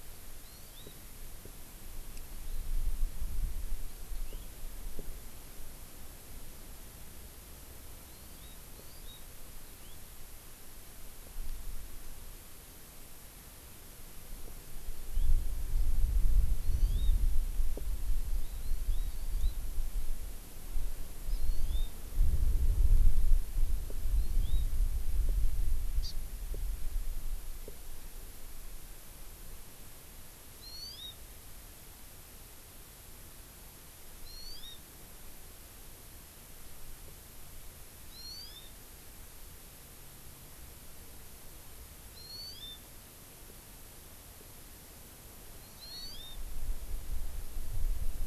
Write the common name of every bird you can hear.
Hawaii Amakihi